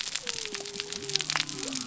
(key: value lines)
label: biophony
recorder: SoundTrap 300